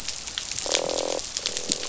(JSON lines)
{"label": "biophony, croak", "recorder": "SoundTrap 500"}